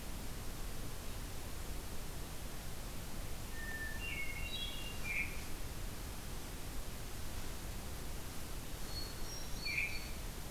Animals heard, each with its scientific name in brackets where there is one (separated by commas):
Hermit Thrush (Catharus guttatus), Veery (Catharus fuscescens)